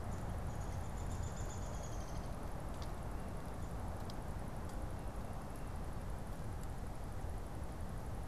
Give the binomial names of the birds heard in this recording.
Dryobates pubescens